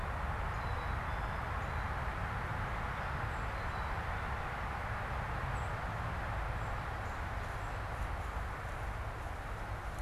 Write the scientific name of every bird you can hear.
Poecile atricapillus, unidentified bird